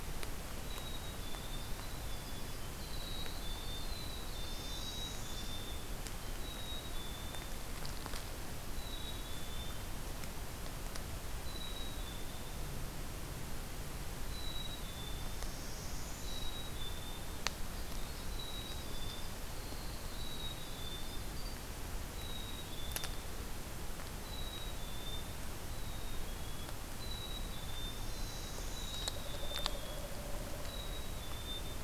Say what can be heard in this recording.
Black-capped Chickadee, Winter Wren, Northern Parula